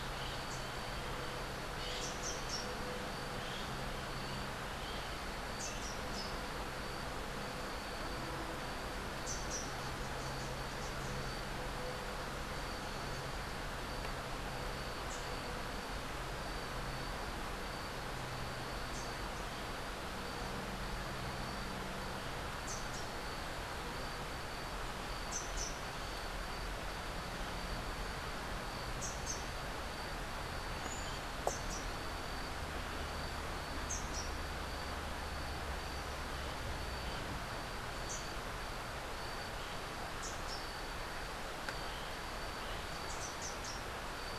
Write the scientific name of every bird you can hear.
Basileuterus rufifrons, Saltator maximus